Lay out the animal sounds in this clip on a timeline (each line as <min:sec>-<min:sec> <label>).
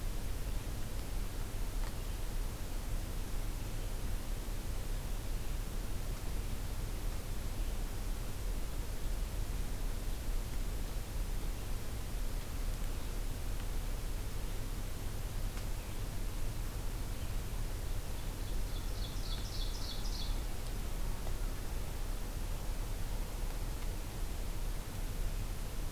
0:18.2-0:20.5 Ovenbird (Seiurus aurocapilla)